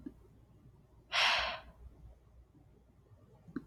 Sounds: Sigh